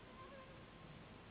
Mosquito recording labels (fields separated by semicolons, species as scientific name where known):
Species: Anopheles gambiae s.s.; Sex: female; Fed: unfed; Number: one; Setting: insect culture